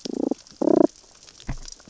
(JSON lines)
{"label": "biophony, damselfish", "recorder": "SoundTrap 600 or HydroMoth"}